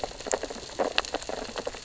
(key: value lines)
label: biophony, sea urchins (Echinidae)
recorder: SoundTrap 600 or HydroMoth